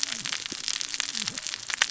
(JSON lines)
{"label": "biophony, cascading saw", "recorder": "SoundTrap 600 or HydroMoth"}